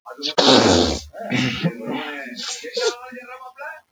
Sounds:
Sniff